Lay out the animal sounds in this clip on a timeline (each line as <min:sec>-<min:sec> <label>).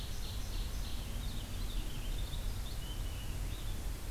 0:00.0-0:01.1 Ovenbird (Seiurus aurocapilla)
0:00.8-0:04.1 Purple Finch (Haemorhous purpureus)